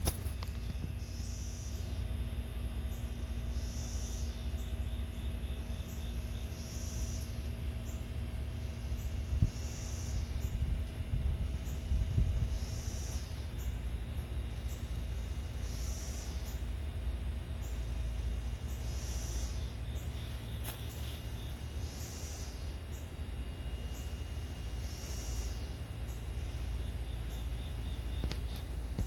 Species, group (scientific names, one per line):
Magicicada cassini
Cicadidae